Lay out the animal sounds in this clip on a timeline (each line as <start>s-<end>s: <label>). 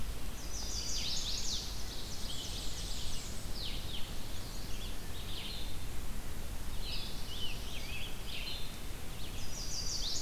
0.0s-10.2s: Red-eyed Vireo (Vireo olivaceus)
0.2s-1.6s: Chestnut-sided Warbler (Setophaga pensylvanica)
1.5s-3.3s: Ovenbird (Seiurus aurocapilla)
1.9s-3.5s: Black-and-white Warbler (Mniotilta varia)
4.1s-4.9s: Chestnut-sided Warbler (Setophaga pensylvanica)
6.5s-8.0s: Black-throated Blue Warbler (Setophaga caerulescens)
9.1s-10.2s: Chestnut-sided Warbler (Setophaga pensylvanica)